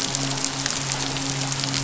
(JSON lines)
{"label": "biophony, midshipman", "recorder": "SoundTrap 500"}